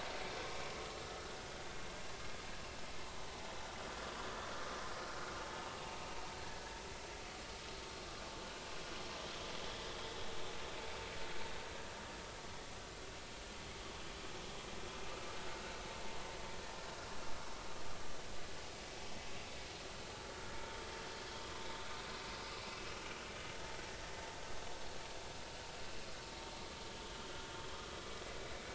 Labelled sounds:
1.0	1.4	vessel noise, 1.2 to 1.5 kHz

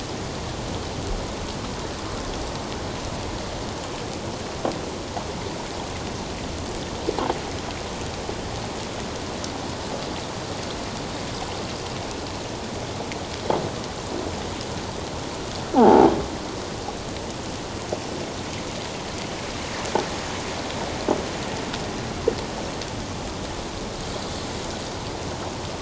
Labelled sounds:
15.7	16.1	croaking sound likely from a nearby submerged object, 0.78 to 1.0 kHz

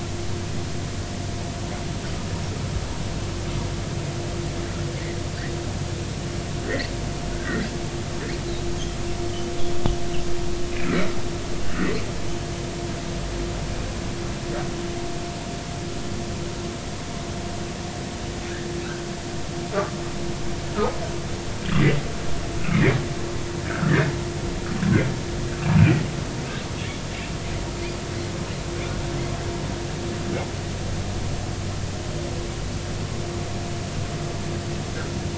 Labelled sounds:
7.3	7.7	humpback whale, 1.3 to 2.1 kHz
20.7	21.0	humpback whale, 1.2 to 1.5 kHz
22.7	24.0	humpback whale, 1.2 to 2.5 kHz
25.8	26.0	humpback whale, 2.2 to 2.8 kHz

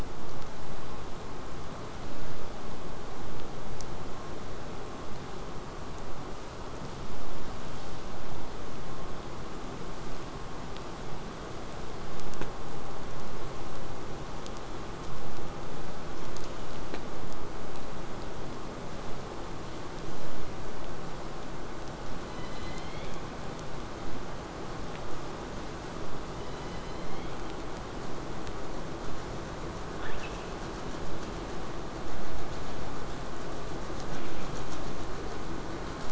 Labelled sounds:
22.3	23.4	killer whale, southern resident, J pod, call S01, 1.7 to 5.7 kHz
26.4	27.6	killer whale, southern resident, J pod, call S01, 1.7 to 5.2 kHz

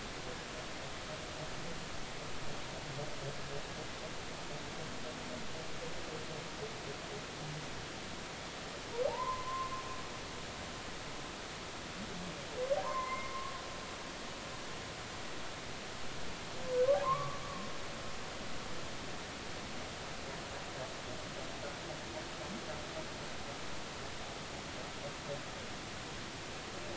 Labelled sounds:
9.1	9.7	humpback whale, 0.80 to 1.1 kHz
12.8	13.3	humpback whale, 0.90 to 2.2 kHz
16.9	17.4	humpback whale, 0.80 to 1.2 kHz

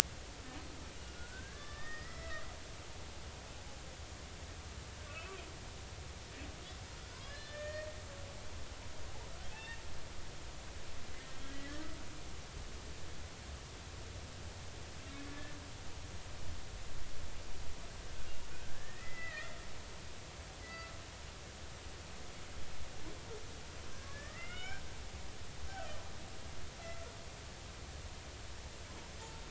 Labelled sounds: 1.0	2.4	humpback whale, 1.1 to 2.0 kHz
5.1	5.4	humpback whale, 2.4 to 2.7 kHz
7.2	8.0	humpback whale, 1.6 to 6.8 kHz
9.5	9.8	humpback whale, 0.80 to 2.8 kHz
11.5	11.7	humpback whale, 1.9 to 2.0 kHz
15.2	15.5	humpback whale, 1.7 to 1.8 kHz
18.5	19.6	humpback whale, 1.2 to 2.7 kHz
20.6	20.9	humpback whale, 1.3 to 2.0 kHz
24.1	24.8	humpback whale, 1.3 to 3.2 kHz
26.9	27.1	humpback whale, 1.3 to 1.5 kHz

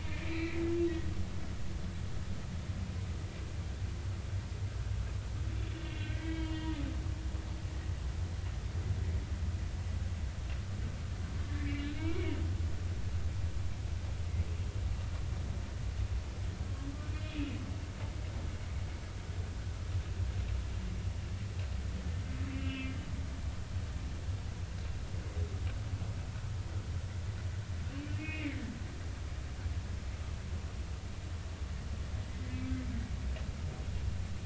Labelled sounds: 0.0	0.6	humpback whale, 1.9 to 4.2 kHz
5.8	6.8	humpback whale, 1.5 to 3.6 kHz
11.5	12.2	humpback whale, 0.90 to 2.4 kHz
17.1	17.6	humpback whale, 2.4 to 3.5 kHz
22.5	22.9	humpback whale, 2.3 to 3.0 kHz
28.2	28.6	humpback whale, 1.9 to 2.9 kHz
32.5	32.8	humpback whale, 2.5 to 2.6 kHz

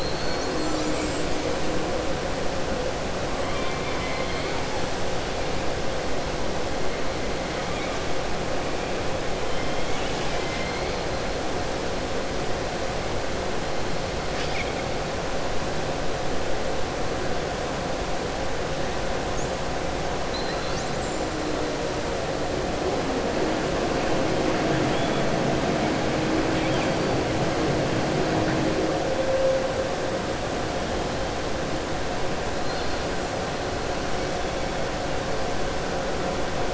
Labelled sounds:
3.4	4.6	killer whale, southern resident, 1.1 to 4.3 kHz
9.5	10.9	killer whale, southern resident, 1.6 to 5.2 kHz
24.6	25.2	killer whale, southern resident, 1.6 to 3.5 kHz

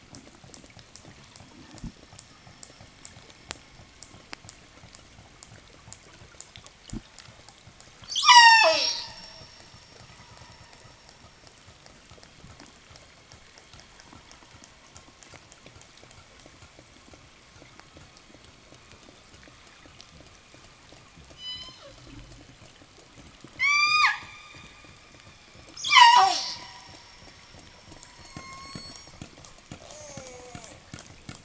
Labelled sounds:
0.0	7.4	killer whale, 1.1 to 8.0 kHz
7.9	9.4	killer whale, southern resident, 0 to 8.0 kHz
11.8	22.1	killer whale, southern resident, 0 to 8.0 kHz
23.2	24.4	killer whale, southern resident, 0.23 to 8.0 kHz
25.6	27.0	killer whale, southern resident, 0.06 to 8.0 kHz
27.4	31.4	killer whale, 0 to 8.0 kHz
27.9	29.3	killer whale, southern resident, 0 to 8.0 kHz
29.6	30.8	killer whale, southern resident, call S04, 0 to 8.0 kHz

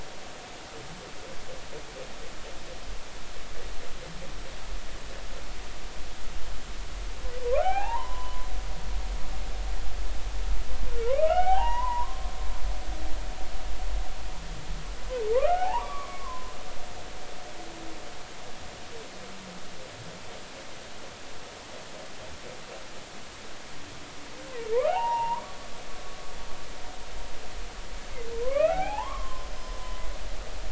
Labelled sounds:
7.4	8.5	humpback whale, 0.80 to 3.0 kHz
11.0	12.3	humpback whale, 0.80 to 3.0 kHz
15.3	16.5	humpback whale, 0.80 to 1.6 kHz
24.5	25.6	humpback whale, 0.80 to 2.9 kHz
28.4	29.5	humpback whale, 0.80 to 3.0 kHz

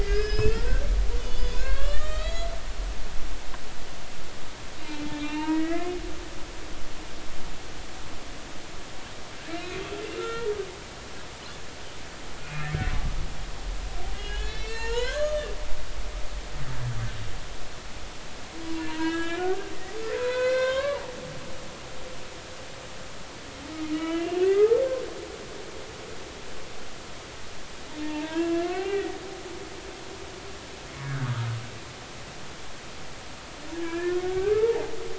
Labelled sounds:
0.0	2.5	humpback whale, 1.0 to 7.5 kHz
4.8	5.9	humpback whale, 0.86 to 3.8 kHz
9.5	10.5	humpback whale, 1.3 to 2.6 kHz
12.4	12.8	humpback whale, 2.0 to 2.6 kHz
14.1	15.5	humpback whale, 0.86 to 7.1 kHz
18.9	19.6	humpback whale, 0.90 to 7.4 kHz
20.1	21.0	humpback whale, 0.96 to 4.7 kHz
23.9	24.7	humpback whale, 1.2 to 3.2 kHz
28.0	29.1	humpback whale, 0.86 to 2.8 kHz
31.0	31.3	humpback whale, 1.4 to 1.7 kHz
33.7	34.8	humpback whale, 0.80 to 2.5 kHz

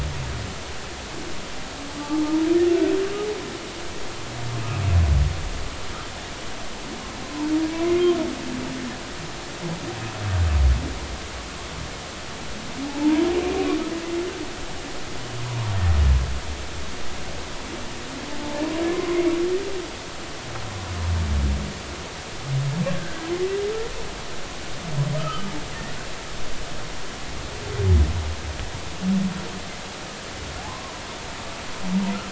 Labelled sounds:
2.0	2.4	humpback whale, 0.83 to 1.3 kHz
12.8	13.2	humpback whale, 0.80 to 1.0 kHz
18.3	19.4	humpback whale, 0.83 to 2.4 kHz
23.0	23.2	humpback whale, 1.5 to 1.7 kHz
25.2	25.5	humpback whale, 1.2 to 1.4 kHz
30.7	31.0	humpback whale, 0.86 to 1.1 kHz

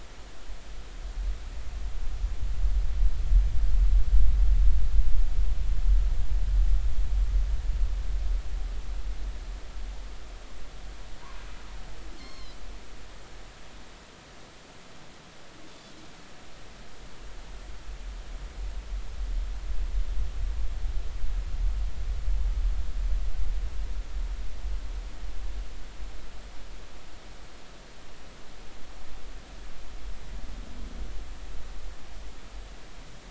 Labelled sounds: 12.2	12.6	Pacific white-sided dolphin, 2.0 to 5.5 kHz

